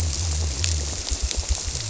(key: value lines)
label: biophony
recorder: SoundTrap 300